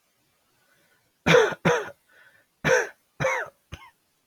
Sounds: Cough